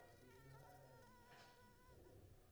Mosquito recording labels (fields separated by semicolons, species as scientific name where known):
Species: Anopheles squamosus; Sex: female; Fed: unfed; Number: one; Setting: cup